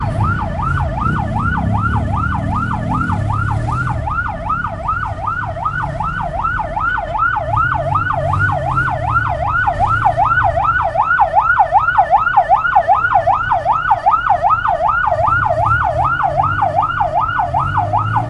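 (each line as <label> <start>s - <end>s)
A motorcycle engine hums in the distance. 0.0s - 4.8s
A rhythmic police siren rises and falls while maintaining a consistent loudness. 0.0s - 18.3s
A car horn sounds twice in quick succession in the distance. 6.7s - 7.6s
A motorcycle engine sputters and hums in the distance. 7.6s - 11.1s
A motorcycle engine sputters and hums in the distance. 15.4s - 18.3s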